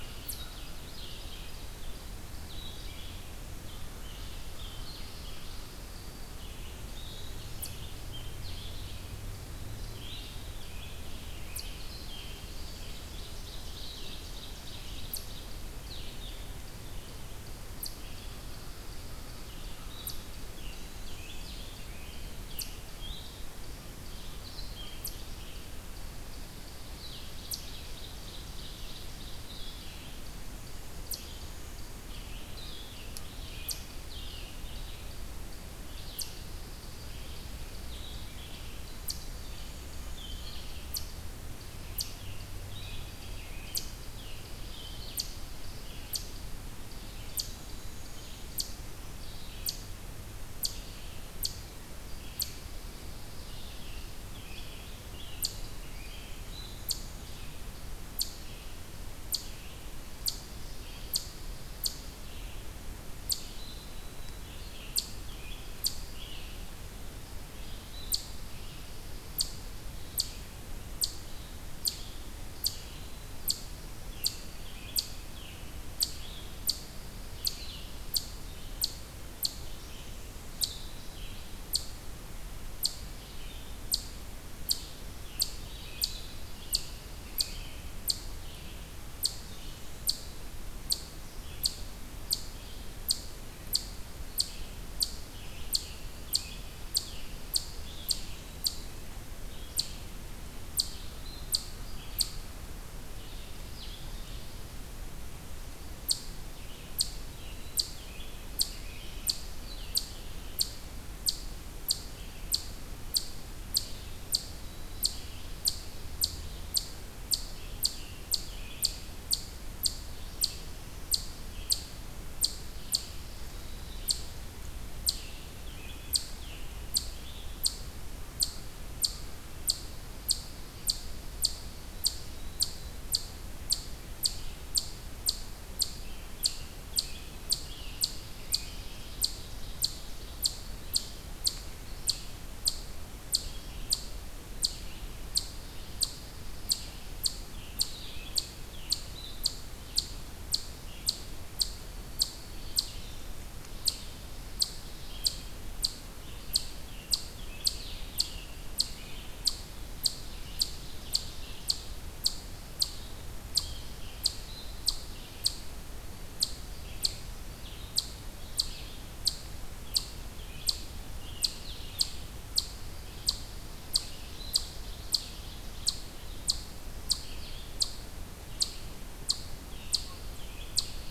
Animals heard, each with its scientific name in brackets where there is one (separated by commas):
American Crow (Corvus brachyrhynchos), Ovenbird (Seiurus aurocapilla), Red Squirrel (Tamiasciurus hudsonicus), Black-throated Green Warbler (Setophaga virens), Blue-headed Vireo (Vireo solitarius), American Robin (Turdus migratorius), Red-eyed Vireo (Vireo olivaceus)